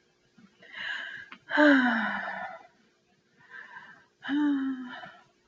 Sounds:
Sigh